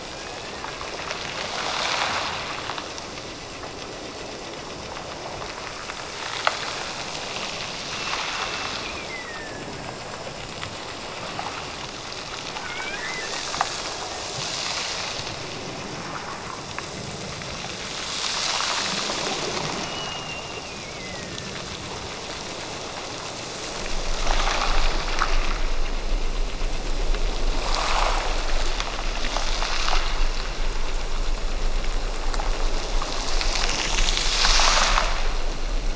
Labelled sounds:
8.0	9.8	killer whale, Bigg's (transient), Gulf of Alaska transient, 1.5 to 2.8 kHz
12.5	13.5	killer whale, Bigg's (transient), Gulf of Alaska transient, 0.69 to 2.6 kHz
19.8	21.6	killer whale, Bigg's (transient), Gulf of Alaska transient, 1.6 to 2.9 kHz

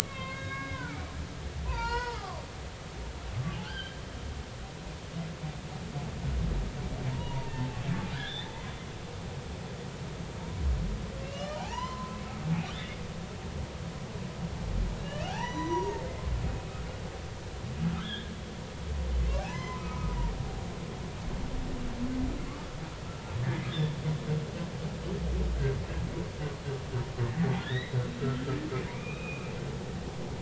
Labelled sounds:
0.0	1.0	humpback whale, 0.86 to 4.9 kHz
1.6	2.4	humpback whale, 0.80 to 5.5 kHz
3.6	4.0	humpback whale, 1.4 to 3.3 kHz
7.1	7.8	humpback whale, 0.80 to 1.0 kHz
8.1	8.5	humpback whale, 1.4 to 2.1 kHz
11.2	12.2	humpback whale, 0.80 to 3.2 kHz
15.0	16.0	humpback whale, 0.80 to 6.0 kHz
17.9	18.3	humpback whale, 1.2 to 3.7 kHz
19.4	20.2	humpback whale, 0.80 to 2.1 kHz
23.7	24.0	humpback whale, 1.6 to 3.6 kHz
27.5	28.5	humpback whale, 1.3 to 4.1 kHz
28.9	29.5	humpback whale, 1.1 to 2.7 kHz

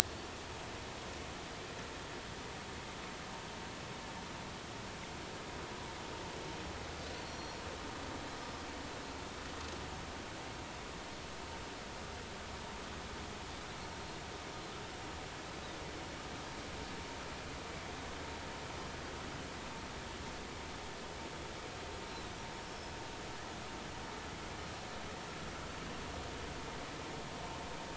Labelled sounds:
7.1	7.6	Pacific white-sided dolphin, 4.2 to 5.8 kHz
22.6	22.8	Pacific white-sided dolphin, 5.3 to 5.6 kHz
24.6	24.8	Pacific white-sided dolphin, 4.1 to 4.2 kHz

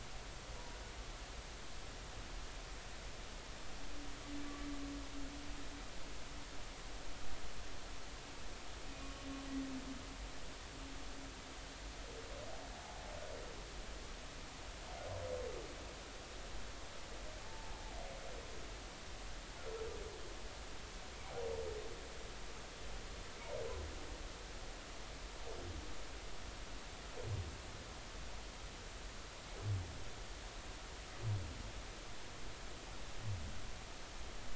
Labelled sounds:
8.9	9.1	humpback whale, 2.4 to 2.6 kHz
17.4	17.8	humpback whale, 0.80 to 0.96 kHz

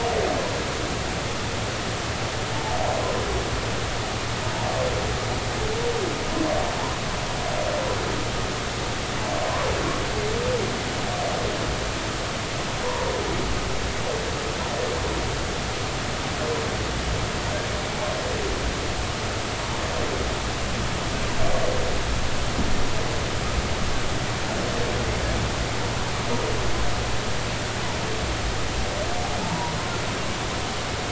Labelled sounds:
29.4	29.7	humpback whale, 0.83 to 1.0 kHz

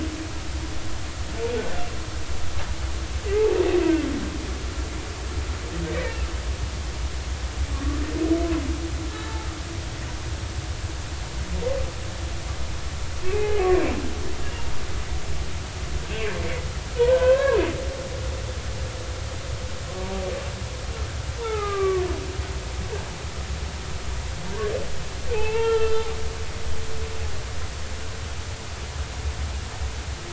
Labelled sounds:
1.6	1.9	humpback whale, 1.3 to 1.6 kHz
5.9	6.2	humpback whale, 1.8 to 2.0 kHz
7.7	8.0	humpback whale, 1.1 to 1.2 kHz
13.2	13.5	humpback whale, 2.2 to 2.7 kHz
17.0	17.6	humpback whale, 0.83 to 1.7 kHz
21.4	22.0	humpback whale, 0.80 to 2.3 kHz
25.3	26.1	humpback whale, 0.80 to 3.2 kHz

